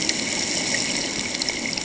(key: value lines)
label: ambient
recorder: HydroMoth